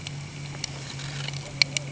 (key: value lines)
label: anthrophony, boat engine
recorder: HydroMoth